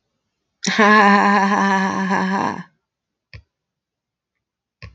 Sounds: Laughter